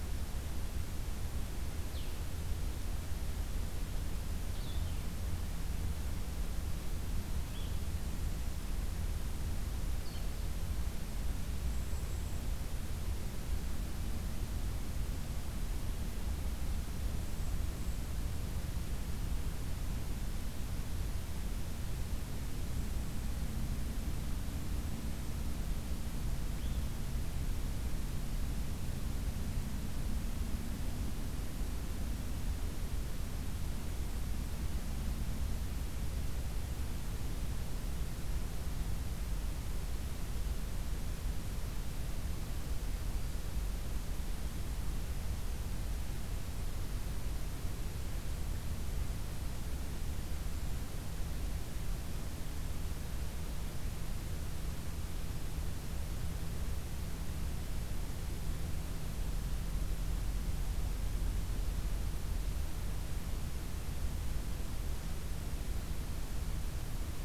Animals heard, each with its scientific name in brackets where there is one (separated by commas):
Blue-headed Vireo (Vireo solitarius), Red Crossbill (Loxia curvirostra)